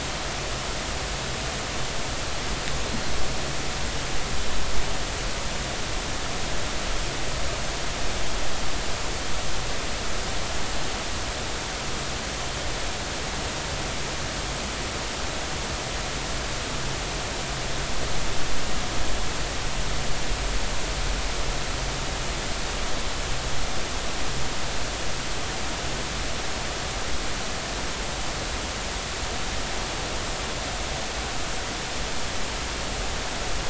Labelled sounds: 2.9	3.1	Pacific white-sided dolphin, 4.1 to 4.3 kHz

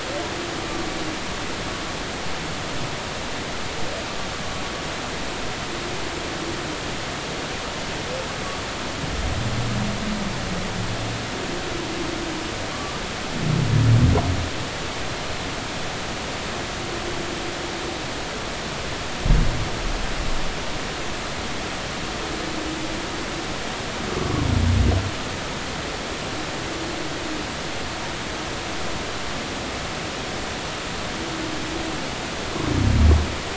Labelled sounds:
12.7	13.0	humpback whale, 1.1 to 1.2 kHz

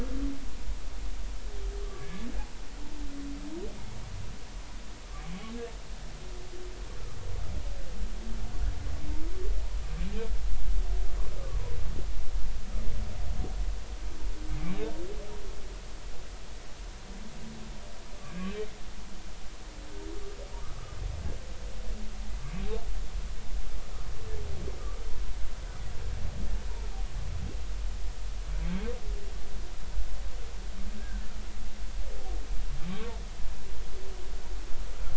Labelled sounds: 1.8	2.3	humpback whale, 1.1 to 2.3 kHz
20.6	21.0	humpback whale, 1.1 to 1.3 kHz
31.0	31.2	humpback whale, 1.5 to 1.7 kHz

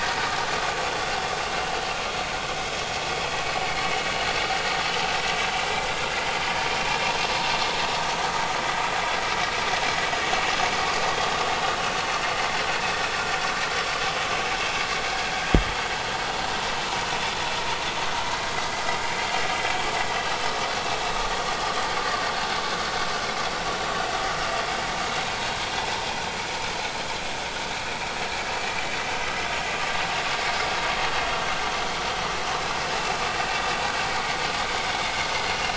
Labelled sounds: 21.1	21.4	vessel noise, 1.8 to 1.9 kHz
22.0	22.3	vessel noise, 4.6 to 4.9 kHz

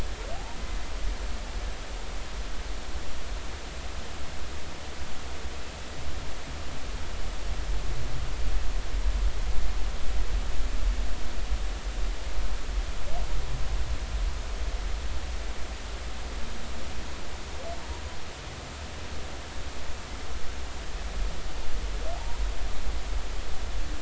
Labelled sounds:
22.2	22.4	humpback whale, 0.80 to 1.0 kHz

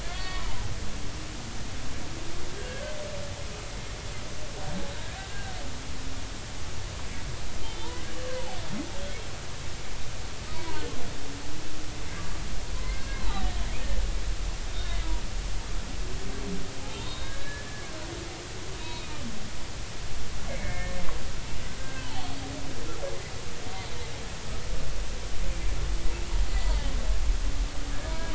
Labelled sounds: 0.0	0.6	humpback whale, 0.80 to 4.5 kHz
2.6	2.9	humpback whale, 1.5 to 1.7 kHz
5.3	5.6	humpback whale, 1.4 to 1.7 kHz
7.6	7.9	humpback whale, 3.0 to 3.2 kHz
10.5	10.8	humpback whale, 0.86 to 1.0 kHz
13.3	13.5	humpback whale, 0.80 to 0.99 kHz
14.8	15.1	humpback whale, 2.0 to 2.2 kHz
17.0	17.8	humpback whale, 1.5 to 3.9 kHz
18.8	19.2	humpback whale, 2.3 to 3.9 kHz
20.5	21.0	humpback whale, 1.7 to 2.3 kHz
21.8	22.2	humpback whale, 1.5 to 3.2 kHz
28.1	28.3	humpback whale, 0.93 to 1.0 kHz

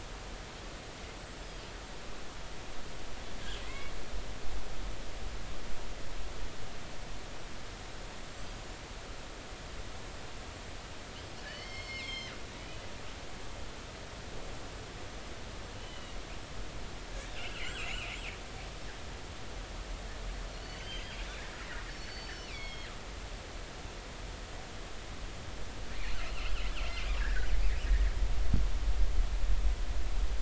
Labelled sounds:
3.6	3.9	killer whale, northern resident, G clan, call N25, 1.9 to 2.3 kHz
11.4	12.3	killer whale, northern resident, G clan, 1.6 to 7.6 kHz
15.8	16.2	killer whale, northern resident, G clan, GI subclan, call N39, 2.8 to 3.1 kHz
17.3	18.1	killer whale, northern resident, G clan, 2.0 to 3.4 kHz
20.6	21.2	killer whale, northern resident, G clan, 2.8 to 6.4 kHz
22.0	22.9	killer whale, northern resident, G clan, GG subclan, call N23ii, 2.0 to 6.1 kHz
26.2	27.5	killer whale, northern resident, G clan, 1.4 to 3.1 kHz

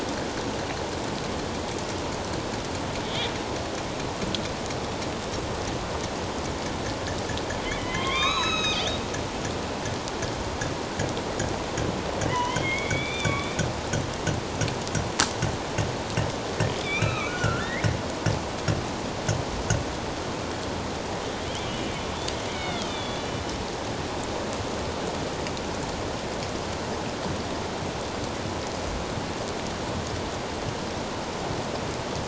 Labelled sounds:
3.0	3.3	killer whale, northern resident, A clan, AB subclan, 3.0 to 3.8 kHz
7.8	9.0	killer whale, northern resident, A clan, AB subclan, 0.94 to 6.8 kHz
12.3	13.6	killer whale, northern resident, A clan, AB subclan, 0.91 to 3.7 kHz
16.8	18.0	killer whale, northern resident, A clan, AB subclan, 1.1 to 2.9 kHz
21.5	21.8	killer whale, northern resident, A clan, AB subclan, 2.8 to 3.6 kHz
22.5	23.3	killer whale, northern resident, A clan, AB subclan, 1.2 to 3.8 kHz

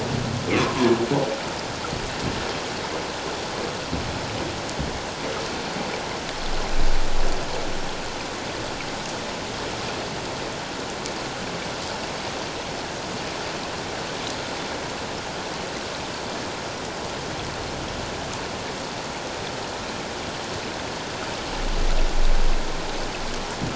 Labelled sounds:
0.5	0.9	humpback whale, 0.91 to 1.3 kHz

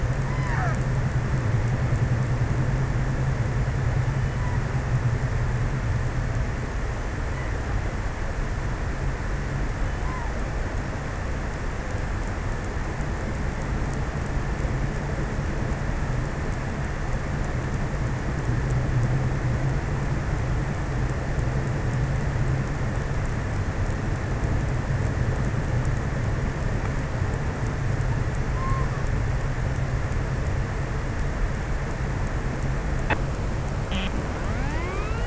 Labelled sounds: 0.0	1.7	killer whale, offshore, 0.18 to 2.7 kHz
28.0	30.4	killer whale, offshore, 0.43 to 1.3 kHz

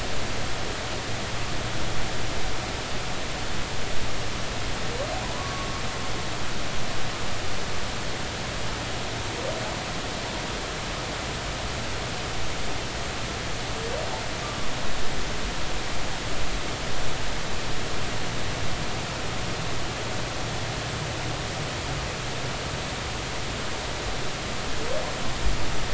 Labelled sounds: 5.3	5.7	humpback whale, 0.96 to 1.2 kHz

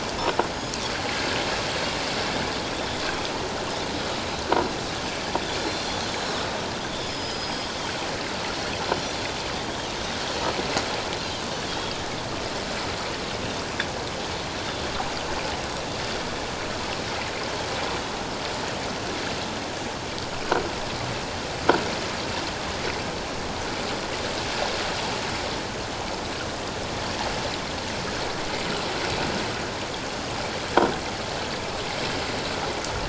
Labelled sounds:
0.5	0.7	Pacific white-sided dolphin, 6.6 to 6.8 kHz
5.6	6.0	Pacific white-sided dolphin, 3.2 to 4.3 kHz
7.0	7.7	Pacific white-sided dolphin, 4.9 to 6.8 kHz
11.7	12.0	Pacific white-sided dolphin, 3.1 to 3.5 kHz

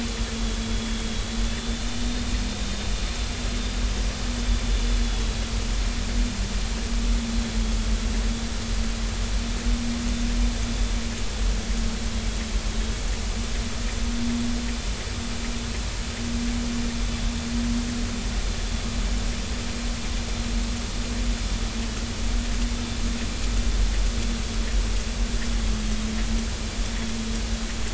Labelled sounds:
1.5	2.8	vessel noise, 3.5 to 3.7 kHz
5.0	5.4	vessel noise, 3.3 to 4.0 kHz

